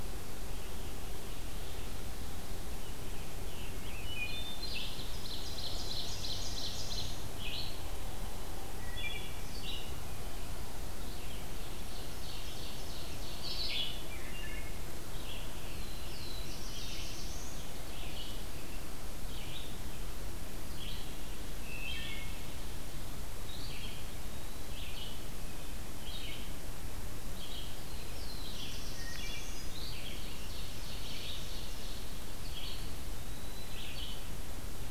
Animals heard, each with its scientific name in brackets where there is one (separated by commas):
Wood Thrush (Hylocichla mustelina), Scarlet Tanager (Piranga olivacea), Black-throated Blue Warbler (Setophaga caerulescens), Red-eyed Vireo (Vireo olivaceus), Eastern Wood-Pewee (Contopus virens), Ovenbird (Seiurus aurocapilla)